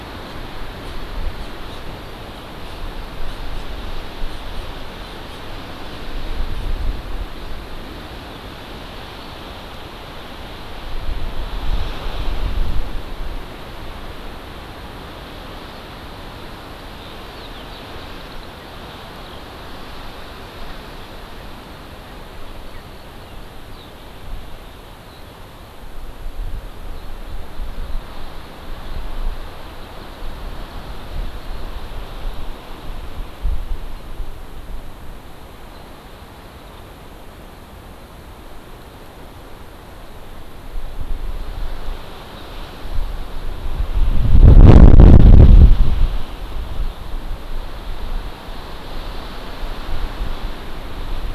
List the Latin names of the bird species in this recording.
Chlorodrepanis virens, Alauda arvensis